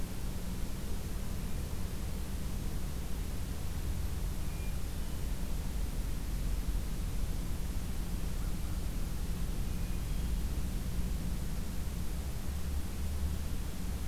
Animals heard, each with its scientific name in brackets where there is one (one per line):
Hermit Thrush (Catharus guttatus)
American Crow (Corvus brachyrhynchos)